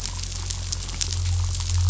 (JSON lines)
{"label": "anthrophony, boat engine", "recorder": "SoundTrap 500"}